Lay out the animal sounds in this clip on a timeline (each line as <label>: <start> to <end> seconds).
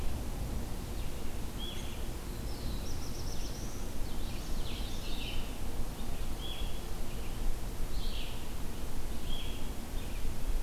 Red-eyed Vireo (Vireo olivaceus): 1.4 to 10.6 seconds
Black-throated Blue Warbler (Setophaga caerulescens): 2.1 to 3.9 seconds
Common Yellowthroat (Geothlypis trichas): 4.0 to 5.2 seconds